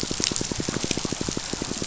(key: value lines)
label: biophony, pulse
recorder: SoundTrap 500